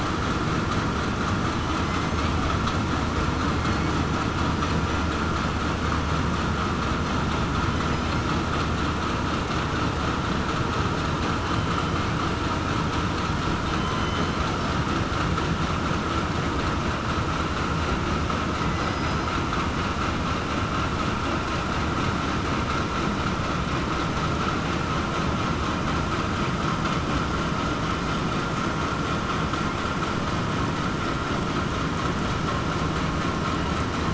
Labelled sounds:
1.8	2.2	killer whale, southern resident, 5.0 to 5.4 kHz
18.8	19.2	killer whale, southern resident, 5.0 to 5.1 kHz

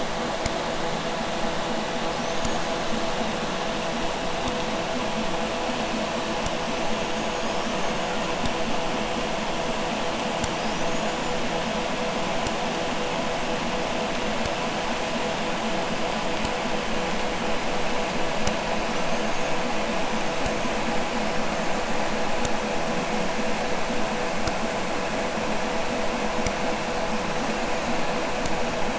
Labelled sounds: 2.0	3.1	killer whale, Bigg's (transient), 3.8 to 6.8 kHz
6.6	8.4	killer whale, Bigg's (transient), 0.88 to 7.0 kHz
10.5	11.6	killer whale, Bigg's (transient), 4.4 to 7.6 kHz
18.8	20.7	killer whale, Bigg's (transient), 4.9 to 6.7 kHz
27.2	28.2	killer whale, Bigg's (transient), 1.2 to 7.3 kHz

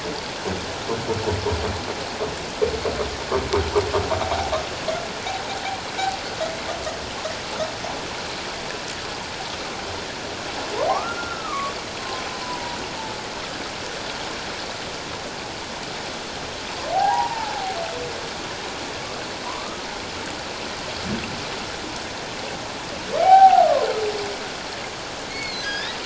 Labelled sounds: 4.2	4.5	humpback whale, 0.78 to 0.88 kHz
10.9	12.8	humpback whale, 0.78 to 1.5 kHz
16.9	17.5	humpback whale, 0.78 to 1.0 kHz
19.4	19.9	humpback whale, 0.94 to 1.3 kHz
23.2	23.9	humpback whale, 0.78 to 1.6 kHz
25.3	26.0	humpback whale, 1.4 to 5.3 kHz

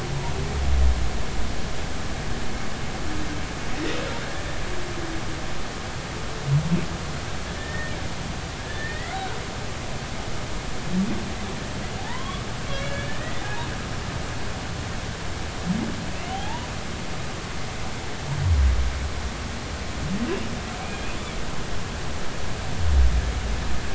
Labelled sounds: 7.6	7.9	humpback whale, 1.7 to 2.0 kHz
8.6	9.2	humpback whale, 1.6 to 2.2 kHz
12.0	13.7	humpback whale, 0.80 to 3.5 kHz
16.1	16.7	humpback whale, 0.80 to 3.4 kHz
20.8	21.2	humpback whale, 2.2 to 2.5 kHz

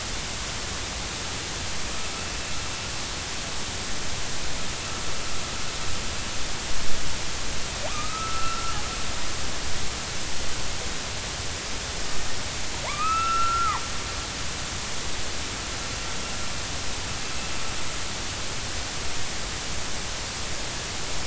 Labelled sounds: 7.9	8.8	killer whale, northern resident, A clan, AB subclan, 1.1 to 1.4 kHz
12.8	13.8	killer whale, northern resident, A clan, AB subclan, 0.83 to 2.8 kHz

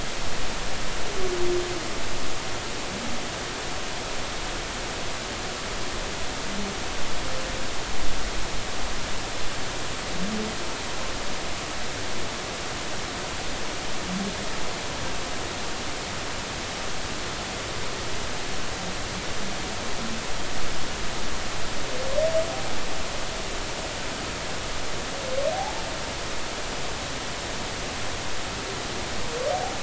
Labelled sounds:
25.5	25.8	humpback whale, 0.80 to 0.93 kHz

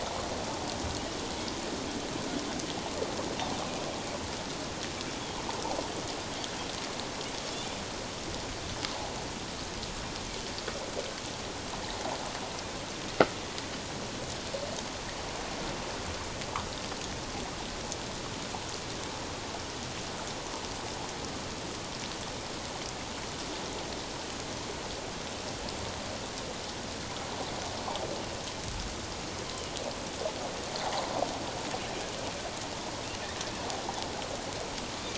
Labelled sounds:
8.9	9.1	water noise, 0.78 to 1.1 kHz

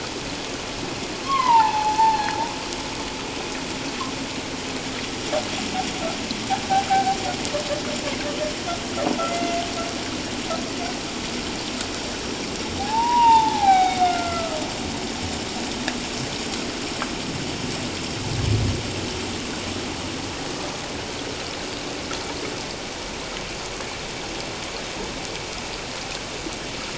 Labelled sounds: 1.2	2.4	humpback whale, 0.78 to 4.5 kHz
6.9	7.2	humpback whale, 0.78 to 0.84 kHz
9.2	9.6	humpback whale, 2.0 to 2.1 kHz
12.8	14.6	humpback whale, 0.78 to 4.1 kHz

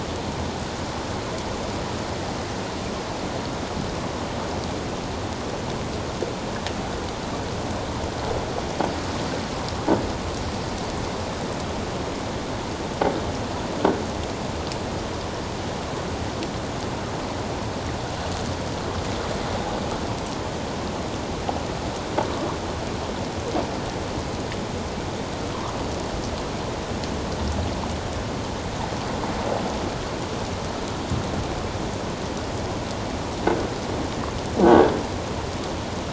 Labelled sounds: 34.6	34.9	croaking sound likely from a nearby submerged object, 1.5 to 1.7 kHz

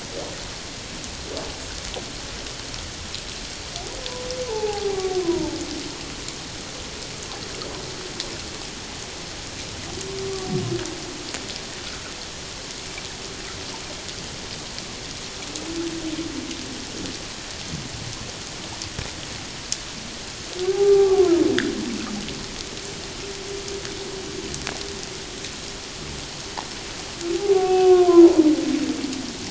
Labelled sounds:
4.4	5.6	humpback whale, 0.78 to 1.1 kHz
20.6	21.2	humpback whale, 0.78 to 1.2 kHz
27.4	28.3	humpback whale, 0.78 to 2.7 kHz

